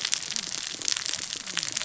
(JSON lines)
{"label": "biophony, cascading saw", "recorder": "SoundTrap 600 or HydroMoth"}